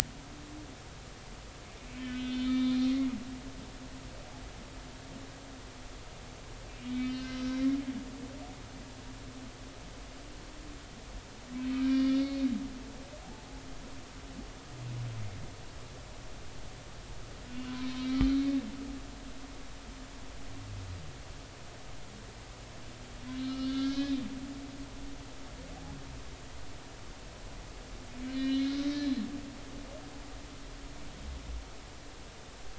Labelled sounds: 1.8	3.1	humpback whale, 1.2 to 3.7 kHz
7.0	8.4	humpback whale, 2.0 to 4.4 kHz
11.7	12.5	humpback whale, 1.8 to 4.4 kHz
17.5	17.7	humpback whale, 2.7 to 2.9 kHz
23.4	24.2	humpback whale, 1.2 to 4.3 kHz
28.3	29.0	humpback whale, 1.8 to 4.2 kHz

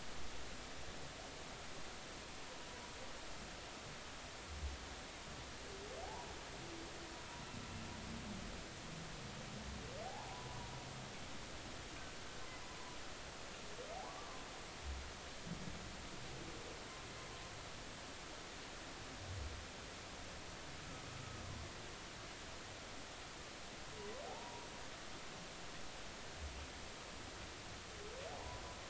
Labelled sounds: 6.0	6.3	humpback whale, 0.80 to 1.0 kHz
10.0	10.5	humpback whale, 0.80 to 1.0 kHz
12.6	13.0	humpback whale, 0.93 to 1.1 kHz
14.0	14.4	humpback whale, 0.96 to 1.2 kHz
24.3	24.7	humpback whale, 0.80 to 1.0 kHz

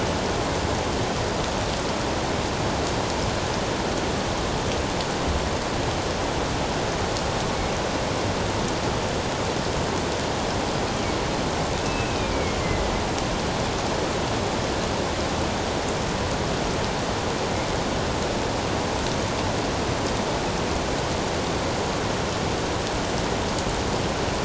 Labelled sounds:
11.8	12.9	killer whale, northern resident, A clan, AA subclan, A04 pod, 1.9 to 2.8 kHz

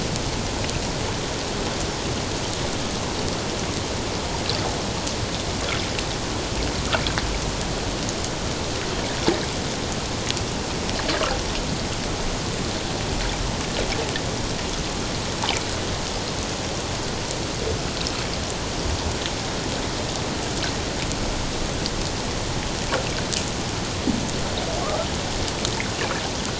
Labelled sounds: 24.8	25.1	fish, 1.0 to 1.4 kHz

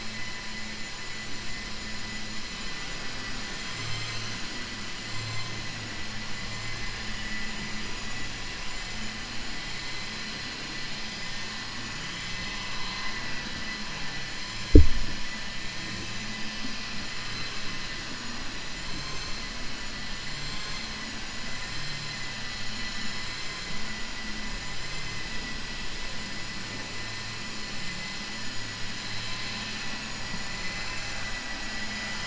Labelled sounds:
3.0	3.4	vessel noise, 1.2 to 3.0 kHz

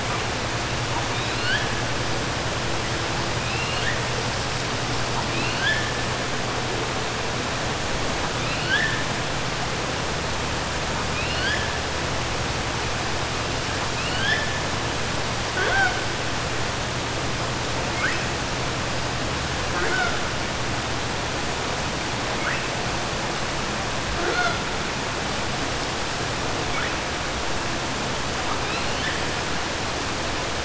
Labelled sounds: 3.4	4.0	killer whale, 1.6 to 5.2 kHz
5.2	5.9	killer whale, 1.2 to 4.5 kHz
8.3	9.0	killer whale, 1.5 to 4.5 kHz
11.0	11.7	killer whale, 1.5 to 5.2 kHz
13.9	14.5	killer whale, 1.5 to 5.3 kHz

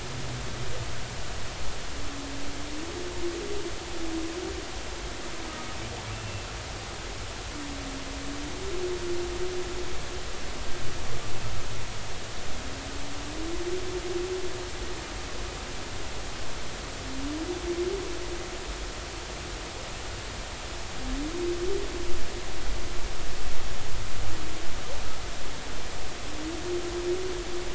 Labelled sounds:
5.5	5.8	humpback whale, 1.2 to 1.3 kHz

